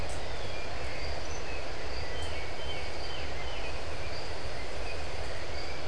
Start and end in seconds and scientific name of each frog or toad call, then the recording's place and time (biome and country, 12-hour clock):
none
Atlantic Forest, Brazil, 5:45pm